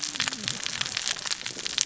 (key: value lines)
label: biophony, cascading saw
recorder: SoundTrap 600 or HydroMoth